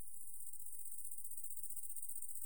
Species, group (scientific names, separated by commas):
Tettigonia viridissima, Orthoptera